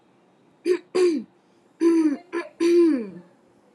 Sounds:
Throat clearing